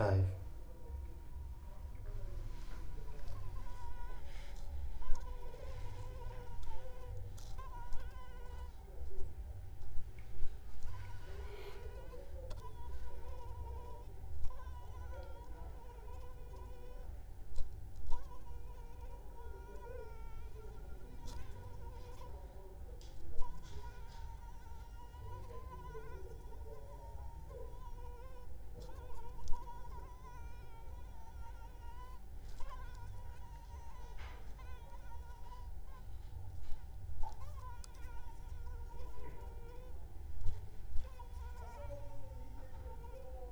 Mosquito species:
Anopheles arabiensis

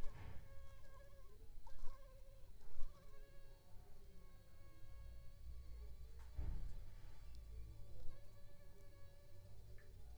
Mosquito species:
Aedes aegypti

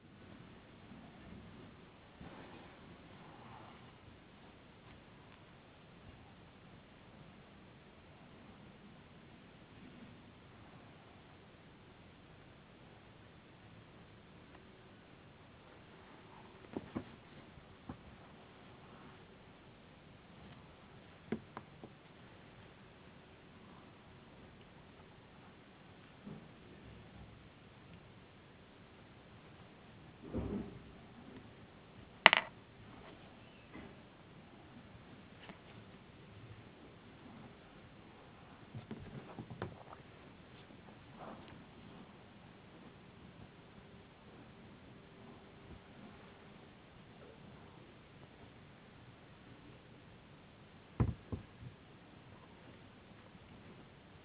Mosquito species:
no mosquito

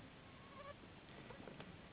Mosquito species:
Anopheles gambiae s.s.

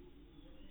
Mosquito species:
mosquito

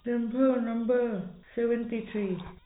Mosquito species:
no mosquito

